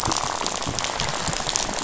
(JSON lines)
{"label": "biophony, rattle", "recorder": "SoundTrap 500"}